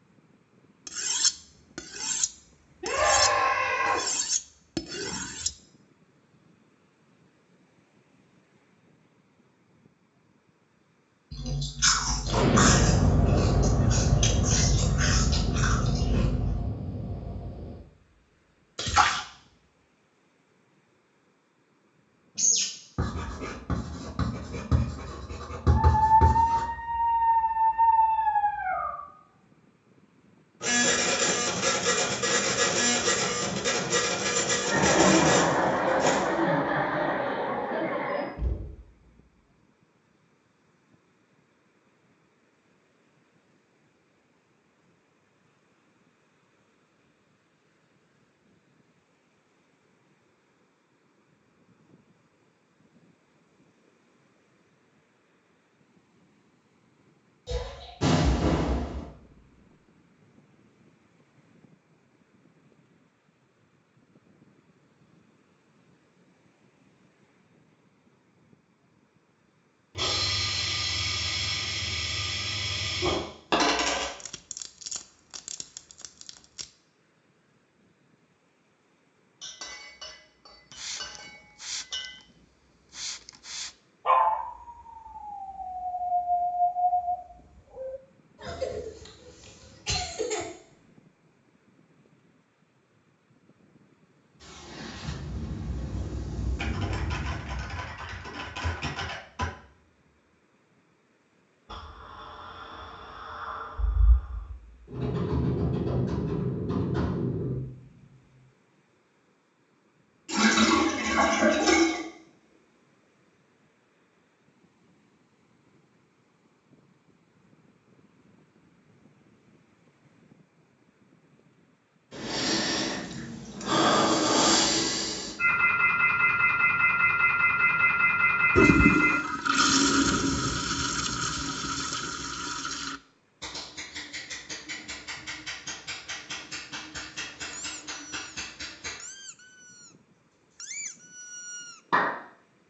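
A soft, steady noise sits about 35 decibels below the sounds. At 0.84 seconds, there is the sound of cutlery. Over it, at 2.81 seconds, someone screams. Later, at 11.3 seconds, chewing is audible. Meanwhile, at 12.27 seconds, an explosion is heard. Next, at 18.77 seconds, there is the sound of a splash. Following that, at 22.34 seconds, a bird can be heard. Afterwards, at 22.96 seconds, you can hear writing. As that goes on, at 25.68 seconds, a dog is audible. Afterwards, at 30.6 seconds, you can hear a printer. Over it, at 34.59 seconds, someone chuckles. Afterwards, at 38.37 seconds, quiet knocking can be heard. At 57.47 seconds, a quiet splash is heard. Next, at 58.0 seconds, there is the sound of an explosion. At 69.95 seconds, you can hear hissing. Next, at 73.49 seconds, a coin drops. At 74.18 seconds, there is the quiet sound of wood. At 79.38 seconds, quiet chinking can be heard. 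Over it, at 80.69 seconds, faint hissing is heard. At 84.04 seconds, a dog can be heard. At 88.37 seconds, someone coughs. At 94.4 seconds, an explosion is heard. Over it, at 96.57 seconds, someone types. Then at 101.68 seconds, a door opens. Afterwards, at 104.87 seconds, you can hear a computer keyboard. Later, at 110.29 seconds, a sink can be heard filling or washing. Then, at 122.1 seconds, someone sighs. After that, at 125.4 seconds, you can hear a telephone. While that goes on, at 128.5 seconds, a toilet flushes. Following that, at 133.4 seconds, there is the faint sound of scissors. Meanwhile, at 137.5 seconds, quiet squeaking is audible. Finally, at 141.9 seconds, someone claps.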